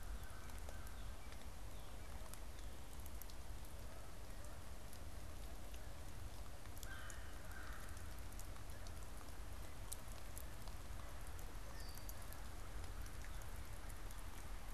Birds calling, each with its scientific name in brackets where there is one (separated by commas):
Red-winged Blackbird (Agelaius phoeniceus), American Crow (Corvus brachyrhynchos), Canada Goose (Branta canadensis)